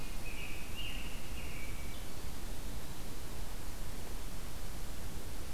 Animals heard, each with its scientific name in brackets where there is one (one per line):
American Robin (Turdus migratorius)